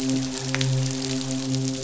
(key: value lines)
label: biophony, midshipman
recorder: SoundTrap 500